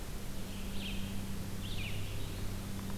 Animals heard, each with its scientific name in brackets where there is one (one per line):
Red-eyed Vireo (Vireo olivaceus)
Eastern Wood-Pewee (Contopus virens)